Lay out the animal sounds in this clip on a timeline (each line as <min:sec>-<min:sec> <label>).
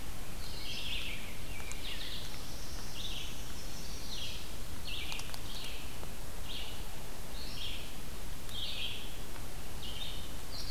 0:00.0-0:10.7 Red-eyed Vireo (Vireo olivaceus)
0:00.2-0:02.3 Rose-breasted Grosbeak (Pheucticus ludovicianus)
0:01.4-0:03.4 Black-throated Blue Warbler (Setophaga caerulescens)